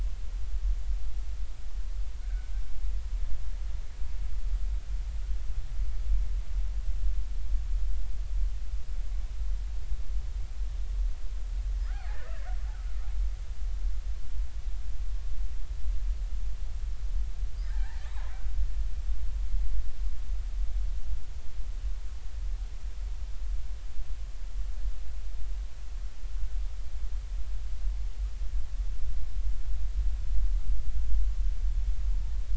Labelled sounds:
2.3	2.5	killer whale, Bigg's (transient), 1.4 to 1.7 kHz
11.9	12.5	killer whale, Bigg's (transient), 0.80 to 2.0 kHz
17.6	18.0	killer whale, Bigg's (transient), 0.80 to 2.1 kHz

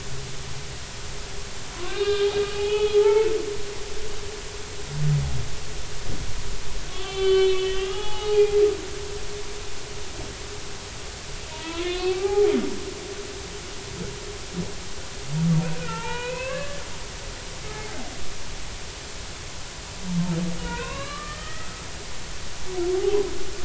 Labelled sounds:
1.8	3.3	humpback whale, 0.80 to 3.8 kHz
6.9	8.6	humpback whale, 0.80 to 4.3 kHz
11.5	12.5	humpback whale, 0.80 to 4.1 kHz
15.8	16.8	humpback whale, 0.83 to 3.0 kHz
17.7	18.0	humpback whale, 0.80 to 0.90 kHz
20.6	21.9	humpback whale, 0.90 to 4.0 kHz
22.9	23.3	humpback whale, 0.80 to 0.86 kHz

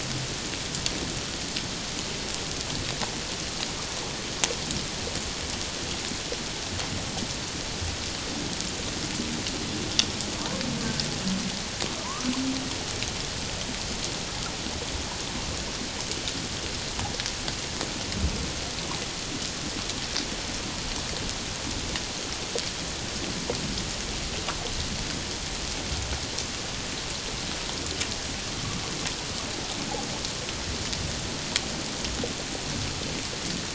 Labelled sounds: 12.0	12.3	humpback whale, 0.91 to 1.3 kHz

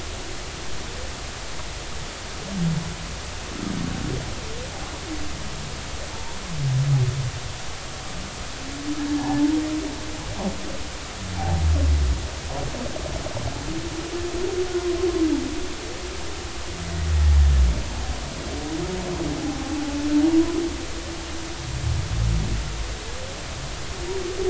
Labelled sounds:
6.1	6.4	humpback whale, 0.86 to 0.99 kHz
9.1	9.5	humpback whale, 0.80 to 1.8 kHz
11.4	11.6	humpback whale, 0.80 to 0.93 kHz
19.4	19.8	humpback whale, 0.80 to 0.86 kHz

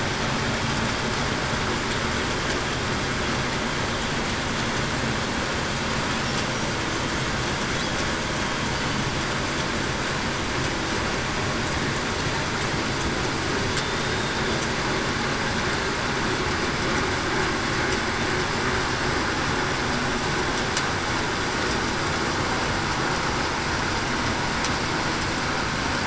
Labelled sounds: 13.8	14.3	killer whale, Bigg's (transient), 3.5 to 3.7 kHz

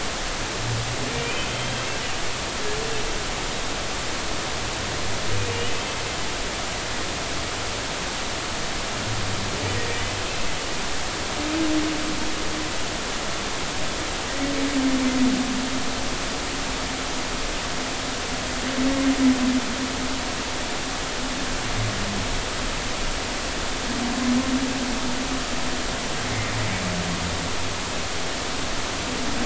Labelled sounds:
1.1	1.9	humpback whale, 2.3 to 3.2 kHz
5.5	6.0	humpback whale, 2.3 to 3.1 kHz
9.9	10.1	humpback whale, 1.8 to 2.0 kHz

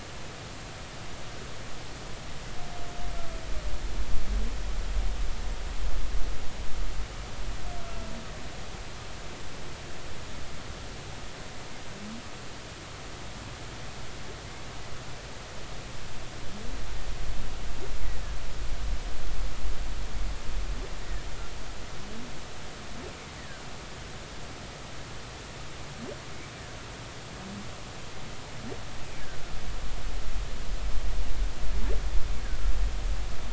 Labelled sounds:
7.8	8.1	humpback whale, 1.2 to 1.4 kHz
18.0	18.4	humpback whale, 1.6 to 2.2 kHz
23.4	23.6	humpback whale, 1.5 to 2.0 kHz

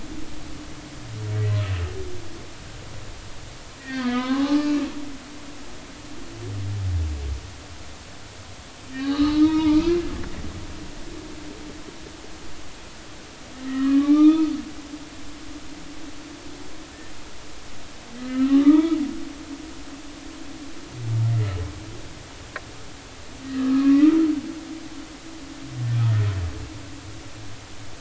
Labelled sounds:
1.3	1.6	humpback whale, 1.9 to 2.0 kHz
3.8	4.8	humpback whale, 0.80 to 3.7 kHz
9.0	10.1	humpback whale, 0.86 to 4.4 kHz
13.6	14.5	humpback whale, 1.0 to 2.6 kHz
18.2	19.0	humpback whale, 0.86 to 3.6 kHz
23.4	24.2	humpback whale, 1.1 to 2.7 kHz

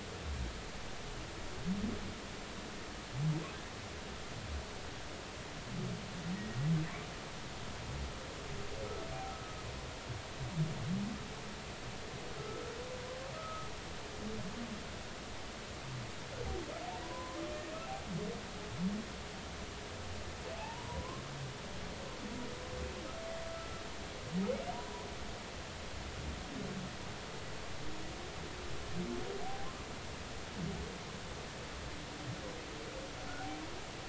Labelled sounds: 12.3	12.6	humpback whale, 1.3 to 1.5 kHz
13.3	13.7	humpback whale, 1.2 to 1.4 kHz
17.0	17.4	humpback whale, 0.93 to 1.1 kHz
20.6	21.2	humpback whale, 0.80 to 1.1 kHz
23.5	23.8	humpback whale, 1.2 to 1.4 kHz
29.4	29.7	humpback whale, 0.80 to 0.86 kHz

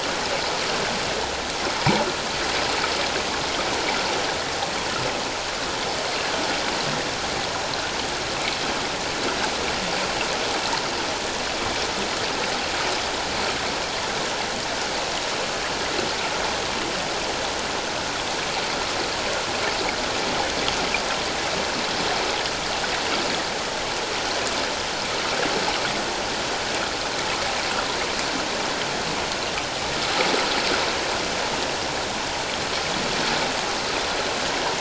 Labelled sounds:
1.8	2.1	water noise, 0.81 to 1.1 kHz

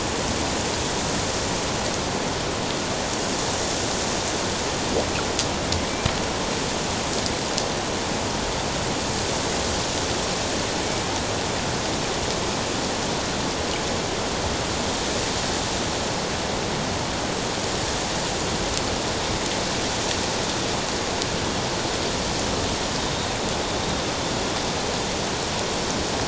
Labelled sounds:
23.0	23.4	killer whale, Bigg's (transient), 3.6 to 3.8 kHz

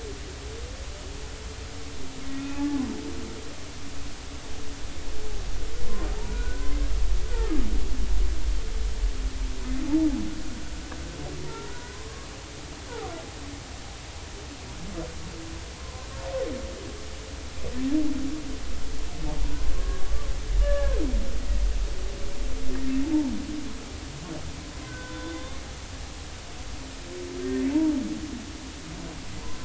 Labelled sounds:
2.3	2.8	humpback whale, 0.80 to 3.7 kHz
6.2	6.7	humpback whale, 0.86 to 1.6 kHz
7.3	7.6	humpback whale, 1.1 to 1.5 kHz
11.4	12.3	humpback whale, 0.86 to 1.5 kHz
15.8	16.1	humpback whale, 0.96 to 1.1 kHz
20.1	20.3	humpback whale, 1.1 to 1.2 kHz
20.6	21.0	humpback whale, 1.1 to 1.8 kHz
24.9	25.6	humpback whale, 0.96 to 1.6 kHz
27.7	28.0	humpback whale, 0.83 to 0.99 kHz

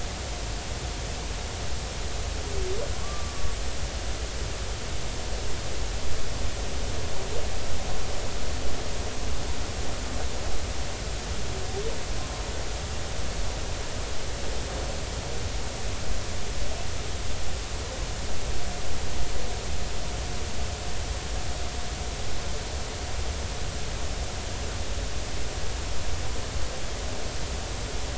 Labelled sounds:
3.0	3.3	humpback whale, 1.0 to 1.2 kHz

